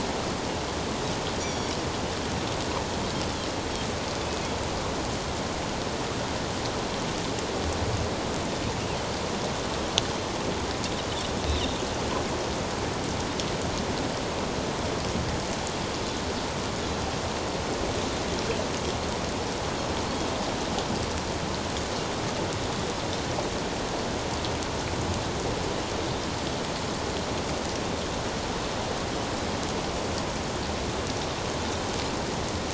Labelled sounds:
1.4	1.7	Pacific white-sided dolphin, 3.3 to 7.0 kHz
11.5	11.8	Pacific white-sided dolphin, 3.5 to 4.0 kHz

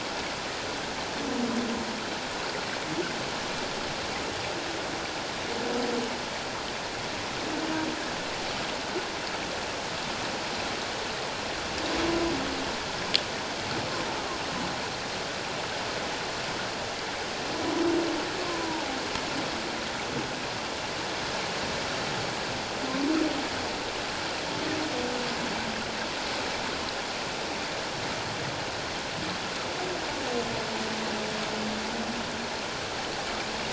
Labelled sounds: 18.4	19.0	humpback whale, 0.78 to 1.1 kHz

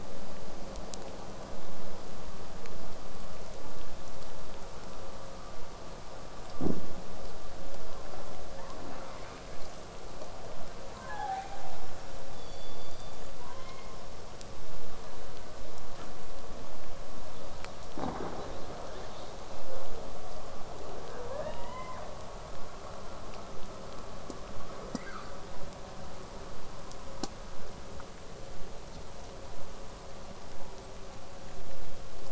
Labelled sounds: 12.3	14.1	killer whale, southern resident, call S16, 0.39 to 7.3 kHz
17.2	19.6	killer whale, southern resident, 3.0 to 5.8 kHz
21.2	22.1	killer whale, southern resident, 0.39 to 5.2 kHz
24.9	25.4	killer whale, southern resident, 0.89 to 6.1 kHz

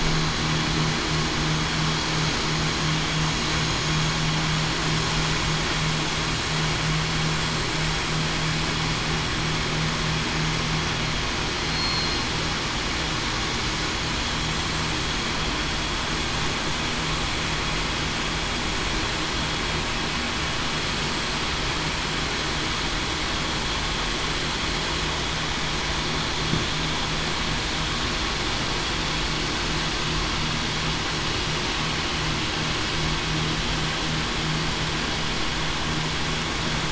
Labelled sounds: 11.6	12.3	killer whale, southern resident, 4.1 to 4.3 kHz

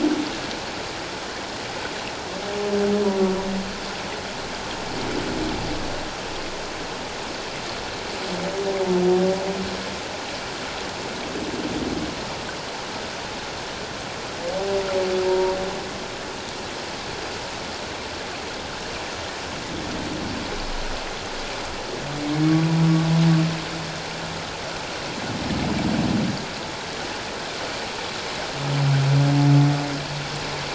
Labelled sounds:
15.2	15.5	humpback whale, 0.88 to 1.0 kHz

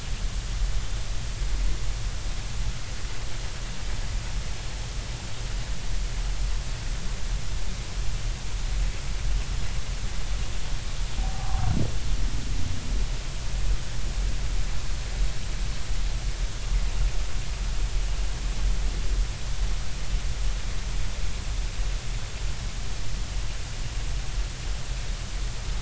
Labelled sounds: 11.2	11.6	humpback whale, 0.80 to 0.90 kHz

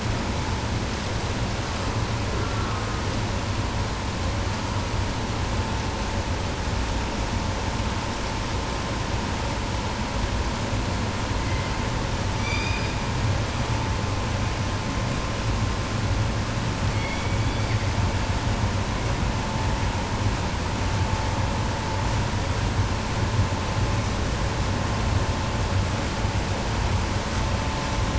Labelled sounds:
2.3	3.3	killer whale, 0.78 to 1.9 kHz
11.3	12.1	killer whale, 1.6 to 2.5 kHz
12.2	13.4	killer whale, southern resident, 1.6 to 7.8 kHz
16.8	18.1	killer whale, 0.78 to 6.7 kHz

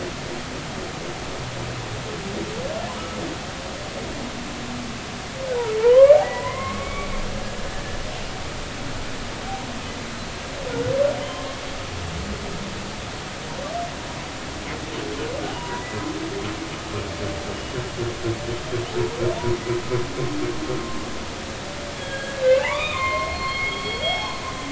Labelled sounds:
5.8	7.8	humpback whale, 0.86 to 2.4 kHz
11.2	11.4	humpback whale, 2.9 to 3.3 kHz
15.6	16.1	humpback whale, 0.83 to 2.1 kHz
21.9	24.4	humpback whale, 0.80 to 4.4 kHz

